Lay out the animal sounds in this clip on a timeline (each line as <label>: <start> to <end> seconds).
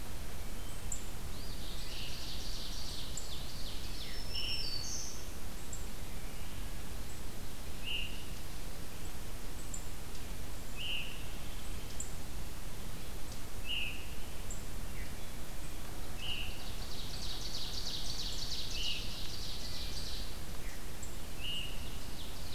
Eastern Phoebe (Sayornis phoebe): 1.2 to 2.0 seconds
Ovenbird (Seiurus aurocapilla): 1.5 to 4.3 seconds
Black-throated Green Warbler (Setophaga virens): 3.6 to 5.2 seconds
Scarlet Tanager (Piranga olivacea): 4.3 to 4.7 seconds
Scarlet Tanager (Piranga olivacea): 7.7 to 8.3 seconds
Scarlet Tanager (Piranga olivacea): 10.7 to 11.2 seconds
Scarlet Tanager (Piranga olivacea): 13.6 to 14.0 seconds
Scarlet Tanager (Piranga olivacea): 16.1 to 16.6 seconds
Ovenbird (Seiurus aurocapilla): 16.6 to 20.3 seconds
Scarlet Tanager (Piranga olivacea): 18.7 to 19.0 seconds
Scarlet Tanager (Piranga olivacea): 21.3 to 21.8 seconds
Ovenbird (Seiurus aurocapilla): 21.7 to 22.5 seconds